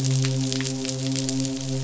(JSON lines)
{"label": "biophony, midshipman", "recorder": "SoundTrap 500"}